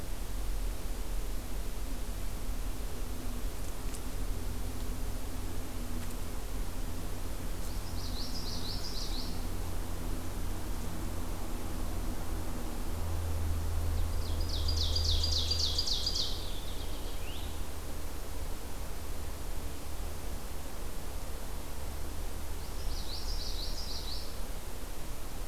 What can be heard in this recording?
Common Yellowthroat, Ovenbird, American Goldfinch